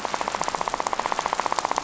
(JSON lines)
{"label": "biophony, rattle", "recorder": "SoundTrap 500"}